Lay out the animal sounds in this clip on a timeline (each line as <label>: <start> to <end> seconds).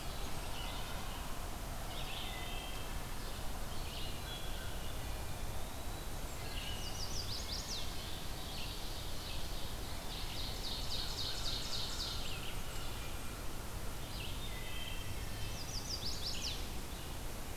Blackburnian Warbler (Setophaga fusca): 0.0 to 0.7 seconds
Red-eyed Vireo (Vireo olivaceus): 0.0 to 16.6 seconds
Wood Thrush (Hylocichla mustelina): 0.4 to 1.2 seconds
Wood Thrush (Hylocichla mustelina): 2.1 to 3.1 seconds
Wood Thrush (Hylocichla mustelina): 3.9 to 4.8 seconds
Eastern Wood-Pewee (Contopus virens): 4.8 to 6.4 seconds
Wood Thrush (Hylocichla mustelina): 6.2 to 6.9 seconds
Chestnut-sided Warbler (Setophaga pensylvanica): 6.8 to 7.9 seconds
Ovenbird (Seiurus aurocapilla): 8.2 to 12.6 seconds
Blackburnian Warbler (Setophaga fusca): 12.0 to 13.4 seconds
Wood Thrush (Hylocichla mustelina): 14.2 to 15.8 seconds
Chestnut-sided Warbler (Setophaga pensylvanica): 15.3 to 16.7 seconds